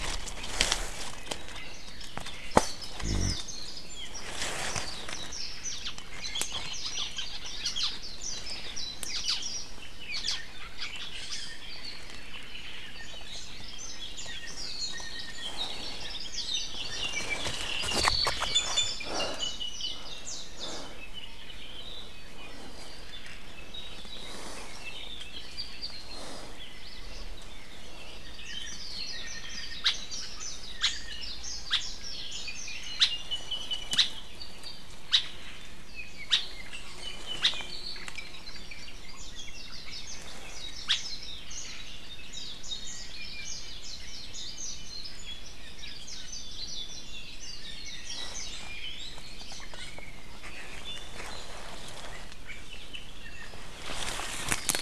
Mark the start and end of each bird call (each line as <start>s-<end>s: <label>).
2.5s-3.9s: Warbling White-eye (Zosterops japonicus)
3.8s-4.2s: Apapane (Himatione sanguinea)
4.6s-5.6s: Warbling White-eye (Zosterops japonicus)
5.6s-6.0s: Hawaii Elepaio (Chasiempis sandwichensis)
6.7s-7.2s: Warbling White-eye (Zosterops japonicus)
6.8s-8.1s: Hawaii Elepaio (Chasiempis sandwichensis)
8.0s-9.0s: Warbling White-eye (Zosterops japonicus)
9.1s-9.5s: Hawaii Elepaio (Chasiempis sandwichensis)
9.4s-9.7s: Warbling White-eye (Zosterops japonicus)
10.1s-11.5s: Hawaii Elepaio (Chasiempis sandwichensis)
11.6s-12.1s: Apapane (Himatione sanguinea)
13.2s-13.6s: Iiwi (Drepanis coccinea)
14.1s-15.4s: Warbling White-eye (Zosterops japonicus)
15.9s-16.3s: Hawaii Creeper (Loxops mana)
16.3s-16.6s: Warbling White-eye (Zosterops japonicus)
17.1s-18.4s: Apapane (Himatione sanguinea)
18.4s-20.1s: Iiwi (Drepanis coccinea)
20.2s-20.9s: Warbling White-eye (Zosterops japonicus)
20.9s-22.4s: Apapane (Himatione sanguinea)
23.5s-24.5s: Apapane (Himatione sanguinea)
24.8s-26.1s: Apapane (Himatione sanguinea)
26.5s-27.1s: Hawaii Elepaio (Chasiempis sandwichensis)
28.3s-33.0s: Warbling White-eye (Zosterops japonicus)
29.8s-30.1s: Hawaii Elepaio (Chasiempis sandwichensis)
30.7s-31.0s: Hawaii Elepaio (Chasiempis sandwichensis)
31.6s-31.9s: Hawaii Elepaio (Chasiempis sandwichensis)
32.9s-33.2s: Hawaii Elepaio (Chasiempis sandwichensis)
33.1s-34.9s: Apapane (Himatione sanguinea)
33.8s-34.1s: Hawaii Elepaio (Chasiempis sandwichensis)
35.0s-35.3s: Hawaii Elepaio (Chasiempis sandwichensis)
35.8s-38.2s: Apapane (Himatione sanguinea)
36.2s-36.5s: Hawaii Elepaio (Chasiempis sandwichensis)
37.3s-37.6s: Hawaii Elepaio (Chasiempis sandwichensis)
39.1s-40.3s: Warbling White-eye (Zosterops japonicus)
40.7s-41.1s: Hawaii Elepaio (Chasiempis sandwichensis)
41.5s-41.8s: Warbling White-eye (Zosterops japonicus)
42.2s-45.2s: Warbling White-eye (Zosterops japonicus)
46.0s-48.7s: Warbling White-eye (Zosterops japonicus)
48.6s-50.0s: Iiwi (Drepanis coccinea)
49.7s-51.6s: Apapane (Himatione sanguinea)
52.4s-53.7s: Apapane (Himatione sanguinea)